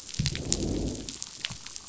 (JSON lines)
{"label": "biophony, growl", "recorder": "SoundTrap 500"}